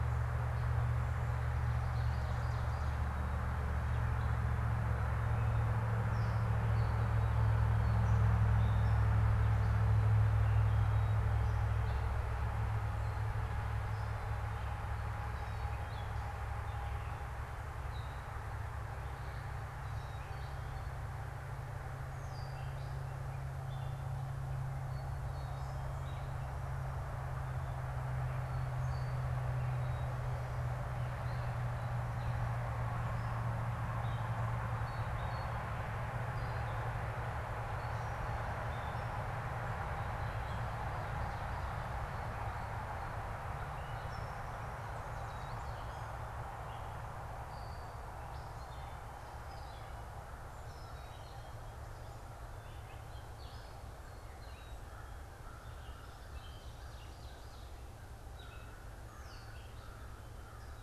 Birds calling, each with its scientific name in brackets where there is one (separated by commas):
American Crow (Corvus brachyrhynchos), Ovenbird (Seiurus aurocapilla), Gray Catbird (Dumetella carolinensis)